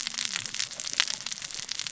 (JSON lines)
{"label": "biophony, cascading saw", "recorder": "SoundTrap 600 or HydroMoth"}